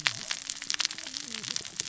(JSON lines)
{"label": "biophony, cascading saw", "recorder": "SoundTrap 600 or HydroMoth"}